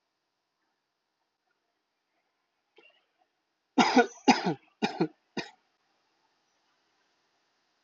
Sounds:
Cough